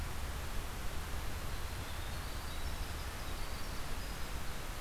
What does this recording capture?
Winter Wren